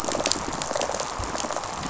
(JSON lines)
{"label": "biophony, rattle response", "recorder": "SoundTrap 500"}